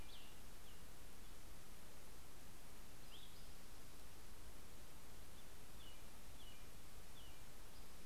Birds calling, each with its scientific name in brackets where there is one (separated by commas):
Cassin's Vireo (Vireo cassinii), American Robin (Turdus migratorius)